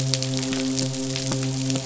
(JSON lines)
{"label": "biophony, midshipman", "recorder": "SoundTrap 500"}